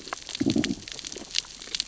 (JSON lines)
{"label": "biophony, growl", "recorder": "SoundTrap 600 or HydroMoth"}